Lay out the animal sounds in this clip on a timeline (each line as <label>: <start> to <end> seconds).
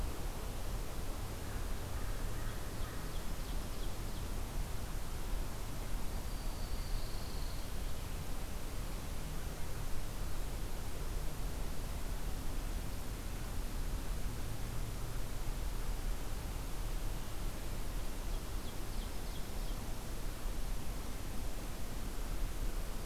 American Crow (Corvus brachyrhynchos): 1.9 to 3.1 seconds
Ovenbird (Seiurus aurocapilla): 2.5 to 4.3 seconds
Black-throated Green Warbler (Setophaga virens): 5.9 to 7.3 seconds
Dark-eyed Junco (Junco hyemalis): 6.7 to 7.8 seconds
Ovenbird (Seiurus aurocapilla): 18.0 to 19.9 seconds